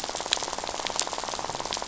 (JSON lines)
{"label": "biophony, rattle", "recorder": "SoundTrap 500"}